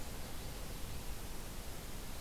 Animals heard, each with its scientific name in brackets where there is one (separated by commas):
Common Yellowthroat (Geothlypis trichas)